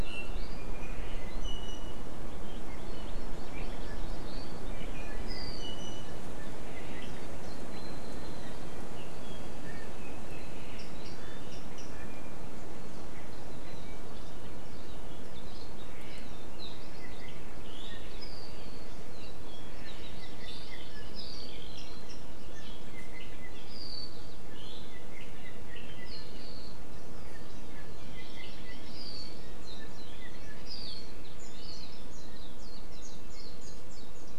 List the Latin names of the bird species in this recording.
Drepanis coccinea, Chlorodrepanis virens, Himatione sanguinea